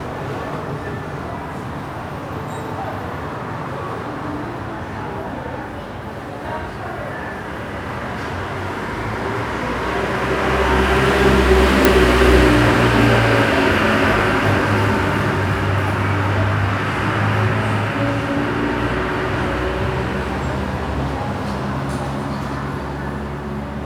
How many vehicles pass by?
one